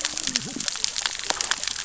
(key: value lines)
label: biophony, cascading saw
recorder: SoundTrap 600 or HydroMoth